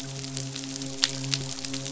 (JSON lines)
{"label": "biophony, midshipman", "recorder": "SoundTrap 500"}